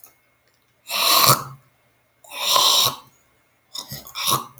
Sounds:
Throat clearing